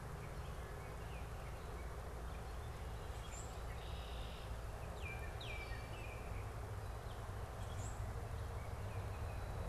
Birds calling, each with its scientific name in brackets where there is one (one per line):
Baltimore Oriole (Icterus galbula)
Common Grackle (Quiscalus quiscula)
Red-winged Blackbird (Agelaius phoeniceus)